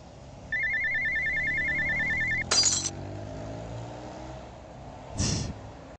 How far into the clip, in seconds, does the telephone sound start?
0.5 s